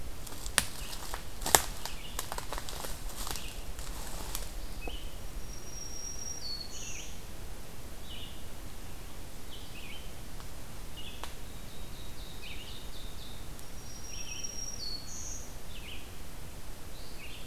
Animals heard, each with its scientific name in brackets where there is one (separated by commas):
Red-eyed Vireo (Vireo olivaceus), Ovenbird (Seiurus aurocapilla), Black-throated Green Warbler (Setophaga virens)